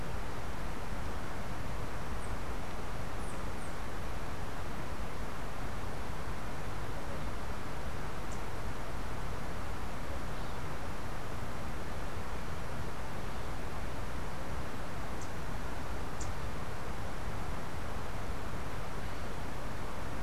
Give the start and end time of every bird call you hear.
7.9s-8.7s: unidentified bird
15.0s-16.4s: unidentified bird

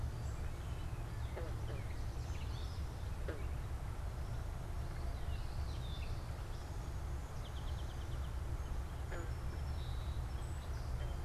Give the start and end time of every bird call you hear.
0.0s-10.6s: Gray Catbird (Dumetella carolinensis)
6.8s-11.2s: Song Sparrow (Melospiza melodia)

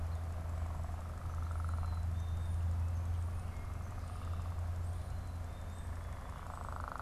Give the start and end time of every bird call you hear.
1.3s-2.7s: Black-capped Chickadee (Poecile atricapillus)

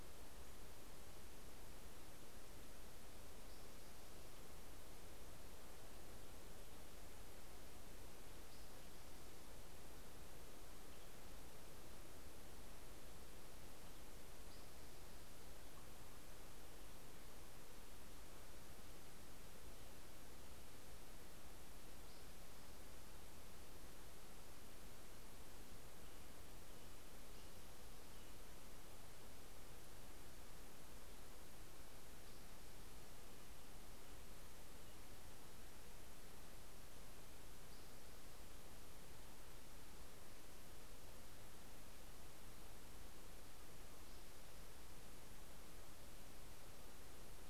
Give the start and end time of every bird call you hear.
3.0s-4.7s: Spotted Towhee (Pipilo maculatus)
14.4s-16.0s: Spotted Towhee (Pipilo maculatus)
21.4s-23.3s: Spotted Towhee (Pipilo maculatus)
25.5s-28.9s: American Robin (Turdus migratorius)
31.7s-33.6s: Spotted Towhee (Pipilo maculatus)
37.1s-39.0s: Spotted Towhee (Pipilo maculatus)
43.6s-45.4s: Spotted Towhee (Pipilo maculatus)

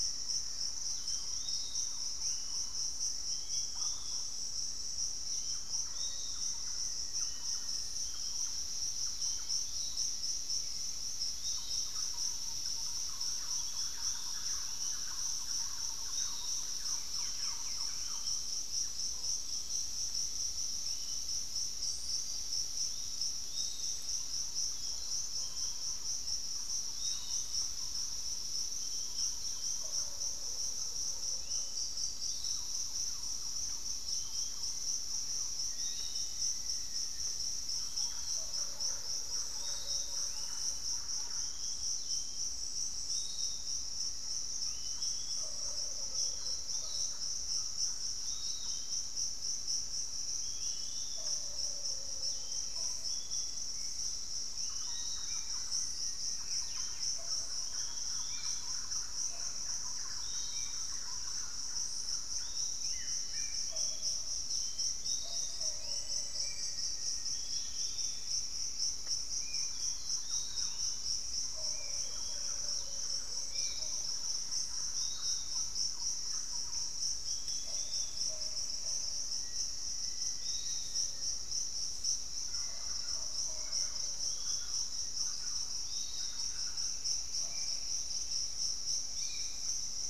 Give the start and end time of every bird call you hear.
0.0s-8.0s: Black-faced Antthrush (Formicarius analis)
0.0s-71.0s: Bluish-fronted Jacamar (Galbula cyanescens)
0.0s-90.1s: Piratic Flycatcher (Legatus leucophaius)
0.1s-19.4s: Thrush-like Wren (Campylorhynchus turdinus)
0.8s-1.5s: unidentified bird
2.1s-2.9s: unidentified bird
23.9s-63.0s: Thrush-like Wren (Campylorhynchus turdinus)
29.2s-29.8s: unidentified bird
35.3s-37.8s: Black-faced Antthrush (Formicarius analis)
51.1s-54.8s: unidentified bird
53.7s-74.0s: Spot-winged Antshrike (Pygiptila stellaris)
54.6s-57.2s: Black-faced Antthrush (Formicarius analis)
62.7s-63.8s: Buff-throated Woodcreeper (Xiphorhynchus guttatus)
65.2s-68.1s: Black-faced Antthrush (Formicarius analis)
69.4s-90.1s: Thrush-like Wren (Campylorhynchus turdinus)
77.4s-79.3s: Pygmy Antwren (Myrmotherula brachyura)
79.3s-85.3s: Black-faced Antthrush (Formicarius analis)
82.3s-84.2s: Hauxwell's Thrush (Turdus hauxwelli)
85.9s-87.6s: Pygmy Antwren (Myrmotherula brachyura)
87.4s-90.1s: Spot-winged Antshrike (Pygiptila stellaris)

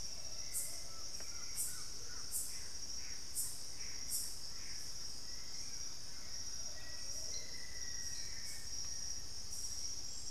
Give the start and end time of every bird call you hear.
0.0s-1.2s: Plumbeous Pigeon (Patagioenas plumbea)
0.0s-9.1s: Hauxwell's Thrush (Turdus hauxwelli)
0.7s-5.1s: Gray Antbird (Cercomacra cinerascens)
0.8s-2.3s: Collared Trogon (Trogon collaris)
6.5s-9.3s: Black-faced Antthrush (Formicarius analis)
6.6s-7.9s: Plumbeous Pigeon (Patagioenas plumbea)

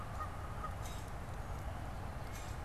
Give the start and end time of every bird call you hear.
0.0s-2.6s: Canada Goose (Branta canadensis)
0.0s-2.6s: Common Grackle (Quiscalus quiscula)

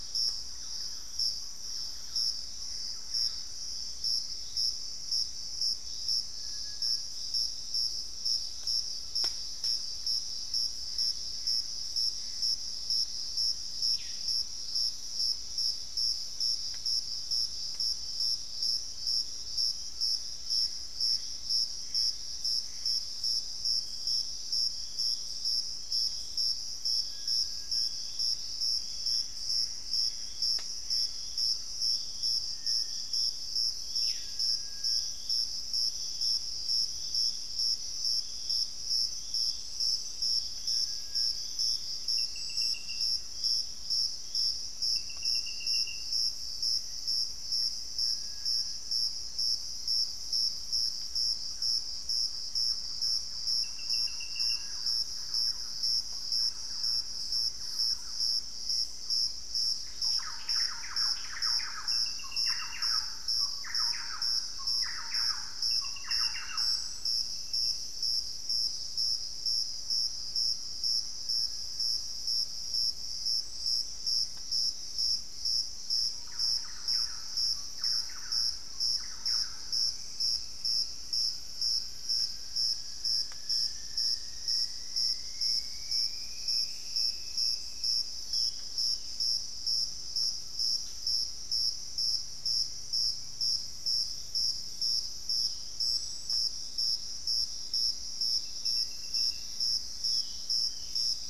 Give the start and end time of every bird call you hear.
0.0s-3.0s: Thrush-like Wren (Campylorhynchus turdinus)
2.5s-3.6s: Gray Antbird (Cercomacra cinerascens)
8.5s-9.7s: Collared Trogon (Trogon collaris)
10.7s-12.7s: Gray Antbird (Cercomacra cinerascens)
19.5s-20.8s: White-throated Toucan (Ramphastos tucanus)
20.3s-23.2s: Gray Antbird (Cercomacra cinerascens)
28.9s-31.5s: Gray Antbird (Cercomacra cinerascens)
37.2s-59.9s: Hauxwell's Thrush (Turdus hauxwelli)
40.0s-43.9s: Thrush-like Wren (Campylorhynchus turdinus)
48.4s-67.2s: Thrush-like Wren (Campylorhynchus turdinus)
76.0s-79.9s: Thrush-like Wren (Campylorhynchus turdinus)
79.7s-82.3s: unidentified bird
80.1s-88.1s: Cinnamon-rumped Foliage-gleaner (Philydor pyrrhodes)
83.3s-84.3s: Long-winged Antwren (Myrmotherula longipennis)
88.1s-89.3s: Ringed Antpipit (Corythopis torquatus)
89.8s-91.8s: unidentified bird
92.4s-94.7s: Hauxwell's Thrush (Turdus hauxwelli)
95.1s-95.8s: unidentified bird
98.7s-101.1s: Black-faced Antthrush (Formicarius analis)
99.9s-101.2s: Ringed Antpipit (Corythopis torquatus)

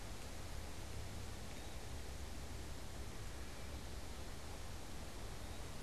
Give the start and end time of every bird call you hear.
0.0s-1.9s: Eastern Wood-Pewee (Contopus virens)
5.0s-5.8s: Eastern Wood-Pewee (Contopus virens)

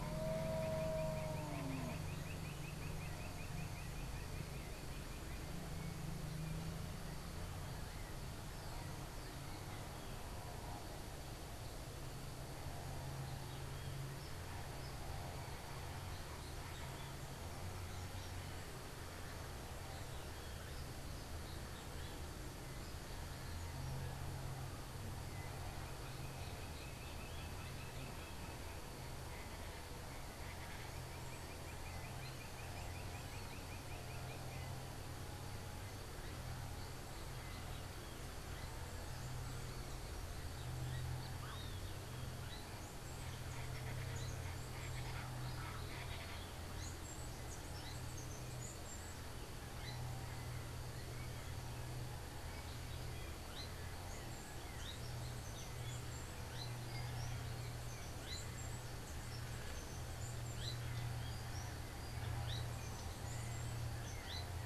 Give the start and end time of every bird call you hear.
0.0s-5.4s: unidentified bird
30.2s-34.6s: unidentified bird
43.4s-46.6s: Colombian Chachalaca (Ortalis columbiana)
53.3s-64.6s: Azara's Spinetail (Synallaxis azarae)

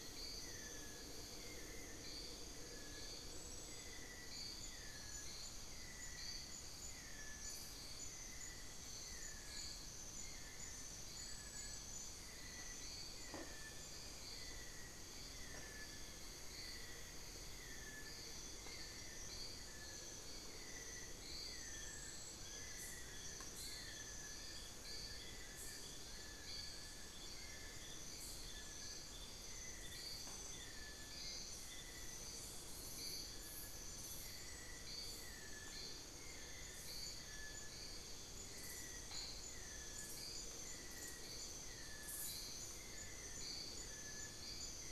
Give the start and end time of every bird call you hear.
15.3s-18.7s: Cinnamon-throated Woodcreeper (Dendrexetastes rufigula)
22.3s-28.2s: Fasciated Antshrike (Cymbilaimus lineatus)

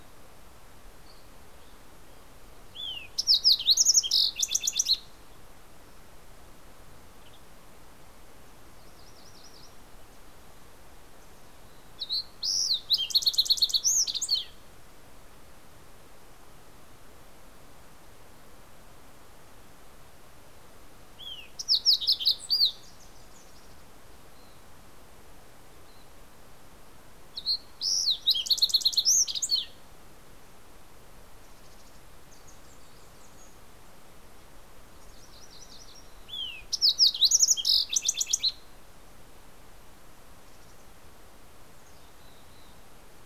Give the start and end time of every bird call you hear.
2.3s-5.6s: Fox Sparrow (Passerella iliaca)
8.4s-10.2s: MacGillivray's Warbler (Geothlypis tolmiei)
11.2s-15.4s: Fox Sparrow (Passerella iliaca)
21.0s-24.2s: Fox Sparrow (Passerella iliaca)
26.9s-30.0s: Fox Sparrow (Passerella iliaca)
31.1s-32.2s: Mountain Chickadee (Poecile gambeli)
32.1s-34.0s: Wilson's Warbler (Cardellina pusilla)
34.4s-36.3s: MacGillivray's Warbler (Geothlypis tolmiei)
36.1s-39.3s: Fox Sparrow (Passerella iliaca)
41.3s-43.2s: Mountain Chickadee (Poecile gambeli)

